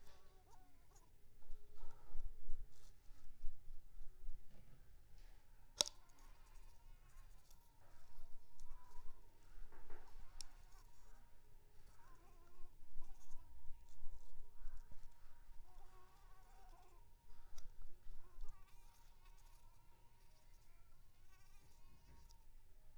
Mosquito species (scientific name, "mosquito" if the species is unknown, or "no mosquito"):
Anopheles arabiensis